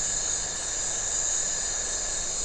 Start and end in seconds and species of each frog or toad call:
0.0	1.5	Iporanga white-lipped frog
~8pm

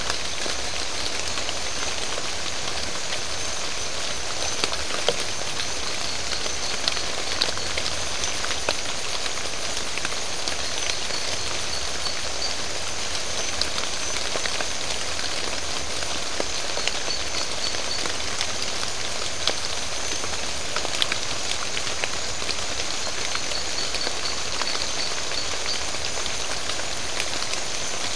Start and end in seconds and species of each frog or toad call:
5.6	7.7	marbled tropical bullfrog
10.8	12.6	marbled tropical bullfrog
16.7	18.1	marbled tropical bullfrog
22.9	25.9	marbled tropical bullfrog
3:30am

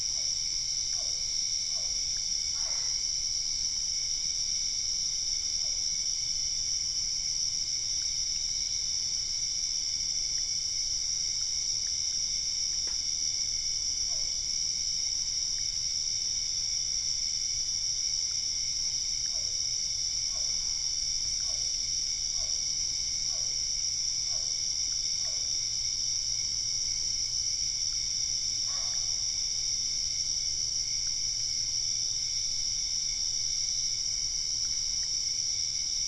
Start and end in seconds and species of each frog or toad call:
0.0	3.3	Physalaemus cuvieri
2.5	3.0	Boana albopunctata
5.5	6.2	Physalaemus cuvieri
13.8	14.7	Physalaemus cuvieri
19.1	25.9	Physalaemus cuvieri
20.3	21.1	Boana albopunctata
~8pm

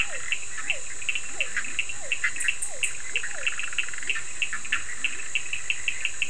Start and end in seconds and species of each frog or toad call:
0.0	3.9	Physalaemus cuvieri
0.0	5.5	Leptodactylus latrans
0.0	6.2	Bischoff's tree frog
0.0	6.2	Cochran's lime tree frog
11:30pm

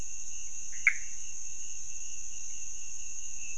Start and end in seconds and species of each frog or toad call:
0.6	1.3	Pithecopus azureus
~1am

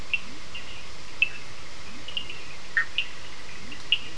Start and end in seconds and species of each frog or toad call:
0.0	0.6	Leptodactylus latrans
0.0	4.1	Cochran's lime tree frog
1.7	2.8	Leptodactylus latrans
2.7	2.9	Bischoff's tree frog
3.5	4.1	Leptodactylus latrans
10pm

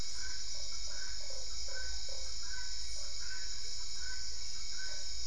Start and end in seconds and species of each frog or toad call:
0.4	5.2	Usina tree frog
8:30pm

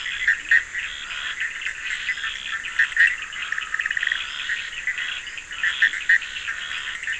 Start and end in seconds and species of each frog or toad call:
0.0	7.1	Bischoff's tree frog
0.0	7.1	Scinax perereca
0.0	7.1	Cochran's lime tree frog
5.8	6.0	Leptodactylus latrans
~11pm

